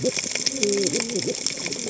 {"label": "biophony, cascading saw", "recorder": "HydroMoth"}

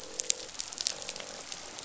{"label": "biophony, croak", "recorder": "SoundTrap 500"}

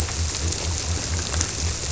{"label": "biophony", "recorder": "SoundTrap 300"}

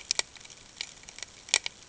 {"label": "ambient", "recorder": "HydroMoth"}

